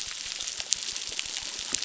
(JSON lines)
{"label": "biophony, crackle", "recorder": "SoundTrap 600"}